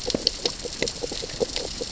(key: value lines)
label: biophony, grazing
recorder: SoundTrap 600 or HydroMoth